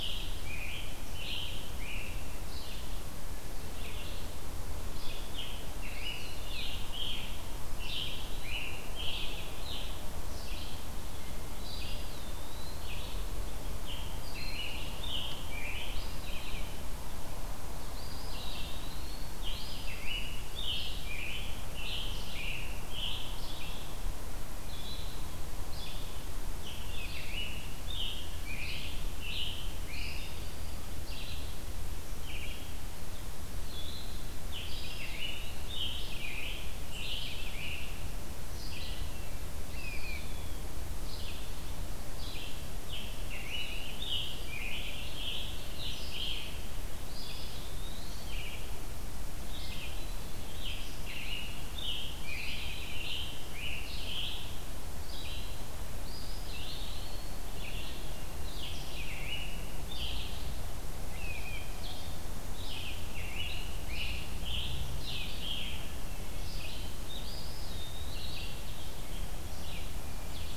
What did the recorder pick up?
Scarlet Tanager, Red-eyed Vireo, Eastern Wood-Pewee, Broad-winged Hawk, unidentified call, Hermit Thrush